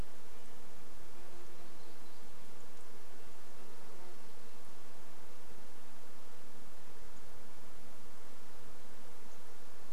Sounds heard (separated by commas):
insect buzz, warbler song, Red-breasted Nuthatch song